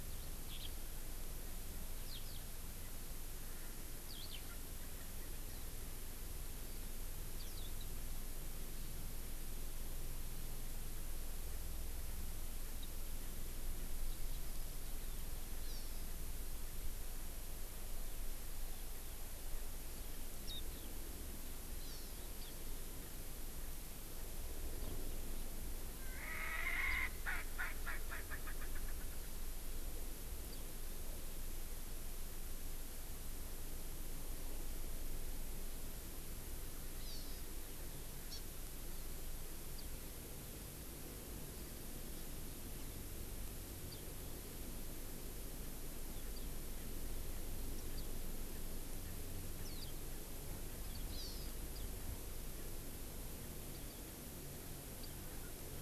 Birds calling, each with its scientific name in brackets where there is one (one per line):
Erckel's Francolin (Pternistis erckelii)
Eurasian Skylark (Alauda arvensis)
Hawaii Amakihi (Chlorodrepanis virens)
Warbling White-eye (Zosterops japonicus)